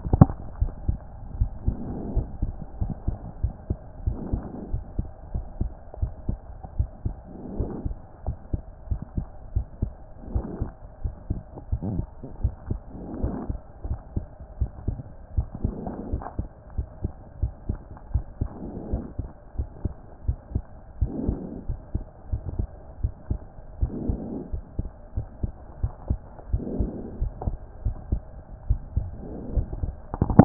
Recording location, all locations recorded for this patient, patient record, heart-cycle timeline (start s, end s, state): pulmonary valve (PV)
aortic valve (AV)+pulmonary valve (PV)+tricuspid valve (TV)+mitral valve (MV)
#Age: Child
#Sex: Male
#Height: 122.0 cm
#Weight: 26.1 kg
#Pregnancy status: False
#Murmur: Absent
#Murmur locations: nan
#Most audible location: nan
#Systolic murmur timing: nan
#Systolic murmur shape: nan
#Systolic murmur grading: nan
#Systolic murmur pitch: nan
#Systolic murmur quality: nan
#Diastolic murmur timing: nan
#Diastolic murmur shape: nan
#Diastolic murmur grading: nan
#Diastolic murmur pitch: nan
#Diastolic murmur quality: nan
#Outcome: Abnormal
#Campaign: 2014 screening campaign
0.00	0.60	unannotated
0.60	0.72	S1
0.72	0.86	systole
0.86	0.98	S2
0.98	1.38	diastole
1.38	1.50	S1
1.50	1.66	systole
1.66	1.76	S2
1.76	2.14	diastole
2.14	2.26	S1
2.26	2.42	systole
2.42	2.52	S2
2.52	2.80	diastole
2.80	2.94	S1
2.94	3.06	systole
3.06	3.18	S2
3.18	3.42	diastole
3.42	3.54	S1
3.54	3.68	systole
3.68	3.78	S2
3.78	4.04	diastole
4.04	4.18	S1
4.18	4.32	systole
4.32	4.42	S2
4.42	4.72	diastole
4.72	4.82	S1
4.82	4.96	systole
4.96	5.06	S2
5.06	5.34	diastole
5.34	5.44	S1
5.44	5.60	systole
5.60	5.70	S2
5.70	6.00	diastole
6.00	6.12	S1
6.12	6.28	systole
6.28	6.38	S2
6.38	6.78	diastole
6.78	6.90	S1
6.90	7.04	systole
7.04	7.14	S2
7.14	7.56	diastole
7.56	7.70	S1
7.70	7.84	systole
7.84	7.96	S2
7.96	8.26	diastole
8.26	8.38	S1
8.38	8.52	systole
8.52	8.62	S2
8.62	8.90	diastole
8.90	9.00	S1
9.00	9.16	systole
9.16	9.26	S2
9.26	9.54	diastole
9.54	9.66	S1
9.66	9.82	systole
9.82	9.92	S2
9.92	10.32	diastole
10.32	10.46	S1
10.46	10.60	systole
10.60	10.70	S2
10.70	11.04	diastole
11.04	11.14	S1
11.14	11.30	systole
11.30	11.40	S2
11.40	11.70	diastole
11.70	11.80	S1
11.80	11.94	systole
11.94	12.06	S2
12.06	12.42	diastole
12.42	12.54	S1
12.54	12.68	systole
12.68	12.80	S2
12.80	13.22	diastole
13.22	13.34	S1
13.34	13.48	systole
13.48	13.58	S2
13.58	13.86	diastole
13.86	14.00	S1
14.00	14.16	systole
14.16	14.24	S2
14.24	14.60	diastole
14.60	14.70	S1
14.70	14.86	systole
14.86	14.98	S2
14.98	15.36	diastole
15.36	15.48	S1
15.48	15.64	systole
15.64	15.74	S2
15.74	16.10	diastole
16.10	16.22	S1
16.22	16.38	systole
16.38	16.48	S2
16.48	16.76	diastole
16.76	16.88	S1
16.88	17.02	systole
17.02	17.12	S2
17.12	17.42	diastole
17.42	17.52	S1
17.52	17.68	systole
17.68	17.78	S2
17.78	18.12	diastole
18.12	18.24	S1
18.24	18.40	systole
18.40	18.50	S2
18.50	18.92	diastole
18.92	19.04	S1
19.04	19.20	systole
19.20	19.28	S2
19.28	19.58	diastole
19.58	19.68	S1
19.68	19.84	systole
19.84	19.92	S2
19.92	20.26	diastole
20.26	20.38	S1
20.38	20.54	systole
20.54	20.64	S2
20.64	21.00	diastole
21.00	21.12	S1
21.12	21.26	systole
21.26	21.40	S2
21.40	21.68	diastole
21.68	21.78	S1
21.78	21.94	systole
21.94	22.04	S2
22.04	22.32	diastole
22.32	22.42	S1
22.42	22.58	systole
22.58	22.68	S2
22.68	23.02	diastole
23.02	23.12	S1
23.12	23.30	systole
23.30	23.40	S2
23.40	23.80	diastole
23.80	23.92	S1
23.92	24.08	systole
24.08	24.20	S2
24.20	24.52	diastole
24.52	24.64	S1
24.64	24.78	systole
24.78	24.88	S2
24.88	25.16	diastole
25.16	25.26	S1
25.26	25.42	systole
25.42	25.52	S2
25.52	25.82	diastole
25.82	25.92	S1
25.92	26.08	systole
26.08	26.20	S2
26.20	26.52	diastole
26.52	26.64	S1
26.64	26.78	systole
26.78	26.92	S2
26.92	27.20	diastole
27.20	27.32	S1
27.32	27.46	systole
27.46	27.56	S2
27.56	27.84	diastole
27.84	27.96	S1
27.96	28.10	systole
28.10	28.22	S2
28.22	28.68	diastole
28.68	28.80	S1
28.80	28.96	systole
28.96	29.08	S2
29.08	29.54	diastole
29.54	30.45	unannotated